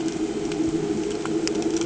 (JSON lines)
{"label": "anthrophony, boat engine", "recorder": "HydroMoth"}